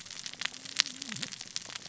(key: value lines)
label: biophony, cascading saw
recorder: SoundTrap 600 or HydroMoth